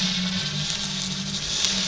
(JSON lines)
{"label": "anthrophony, boat engine", "recorder": "SoundTrap 500"}